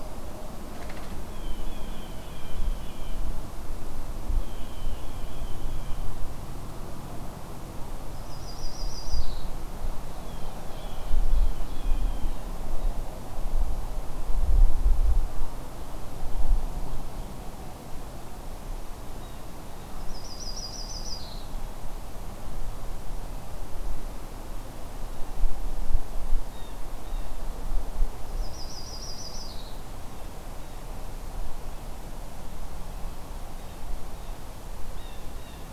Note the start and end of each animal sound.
[1.27, 3.28] Blue Jay (Cyanocitta cristata)
[4.31, 6.12] Blue Jay (Cyanocitta cristata)
[8.08, 9.52] Yellow-rumped Warbler (Setophaga coronata)
[9.70, 11.94] Ovenbird (Seiurus aurocapilla)
[10.02, 12.58] Blue Jay (Cyanocitta cristata)
[20.00, 21.48] Yellow-rumped Warbler (Setophaga coronata)
[26.41, 27.45] Blue Jay (Cyanocitta cristata)
[28.21, 29.82] Yellow-rumped Warbler (Setophaga coronata)
[33.50, 35.73] Blue Jay (Cyanocitta cristata)

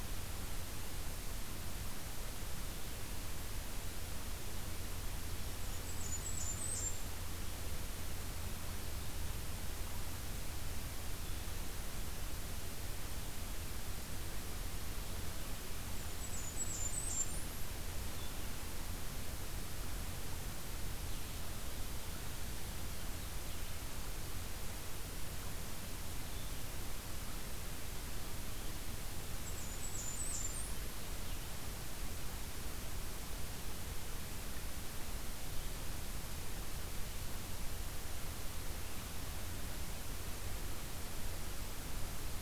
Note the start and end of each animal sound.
[5.47, 6.99] Blackburnian Warbler (Setophaga fusca)
[11.16, 31.49] Blue-headed Vireo (Vireo solitarius)
[15.94, 17.60] Blackburnian Warbler (Setophaga fusca)
[29.34, 30.95] Blackburnian Warbler (Setophaga fusca)

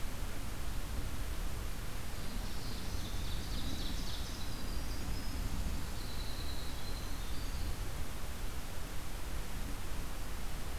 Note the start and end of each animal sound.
[2.22, 4.74] Ovenbird (Seiurus aurocapilla)
[3.97, 8.20] Winter Wren (Troglodytes hiemalis)

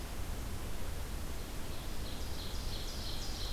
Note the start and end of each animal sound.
[1.47, 3.53] Ovenbird (Seiurus aurocapilla)

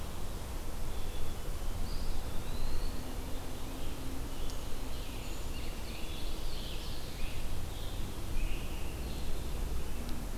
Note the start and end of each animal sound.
[0.54, 1.59] Black-capped Chickadee (Poecile atricapillus)
[1.75, 3.22] Eastern Wood-Pewee (Contopus virens)
[4.71, 9.05] Scarlet Tanager (Piranga olivacea)
[4.72, 7.42] Ovenbird (Seiurus aurocapilla)

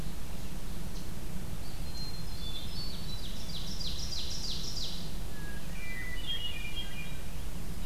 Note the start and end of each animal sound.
[1.55, 3.24] Hermit Thrush (Catharus guttatus)
[2.35, 5.26] Ovenbird (Seiurus aurocapilla)
[5.28, 7.36] Hermit Thrush (Catharus guttatus)

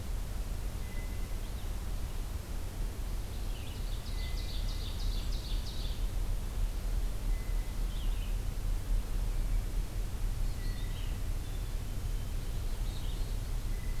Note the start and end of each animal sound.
[0.00, 14.00] Red-eyed Vireo (Vireo olivaceus)
[0.73, 1.66] Blue Jay (Cyanocitta cristata)
[3.72, 6.01] Ovenbird (Seiurus aurocapilla)
[4.08, 4.93] Blue Jay (Cyanocitta cristata)
[7.17, 7.94] Blue Jay (Cyanocitta cristata)
[10.51, 11.29] Blue Jay (Cyanocitta cristata)
[11.41, 12.45] Black-capped Chickadee (Poecile atricapillus)

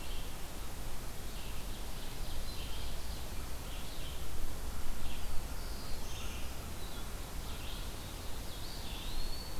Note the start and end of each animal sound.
[0.00, 9.60] Red-eyed Vireo (Vireo olivaceus)
[1.15, 3.39] Ovenbird (Seiurus aurocapilla)
[5.00, 6.43] Black-throated Blue Warbler (Setophaga caerulescens)
[8.40, 9.60] Eastern Wood-Pewee (Contopus virens)

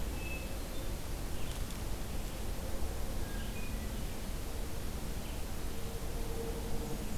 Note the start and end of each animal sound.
[0.05, 1.09] Hermit Thrush (Catharus guttatus)
[1.17, 7.17] Red-eyed Vireo (Vireo olivaceus)
[3.04, 4.08] Hermit Thrush (Catharus guttatus)

